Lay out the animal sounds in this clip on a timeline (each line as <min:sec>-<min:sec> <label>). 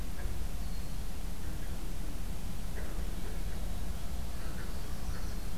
0:00.6-0:01.1 Red-winged Blackbird (Agelaius phoeniceus)
0:04.2-0:05.6 Northern Parula (Setophaga americana)